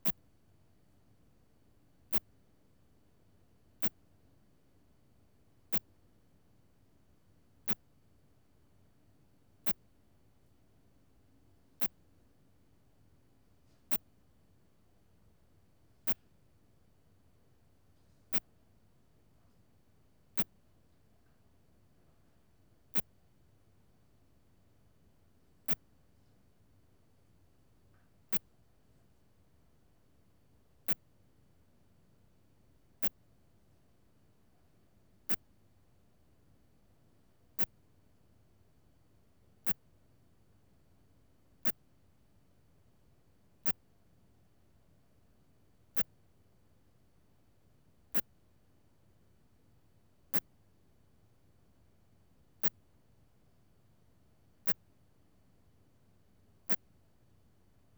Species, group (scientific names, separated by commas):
Phaneroptera falcata, Orthoptera